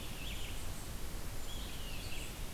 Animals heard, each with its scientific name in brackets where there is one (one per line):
Eastern Wood-Pewee (Contopus virens)
Red-eyed Vireo (Vireo olivaceus)